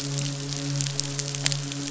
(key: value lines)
label: biophony, midshipman
recorder: SoundTrap 500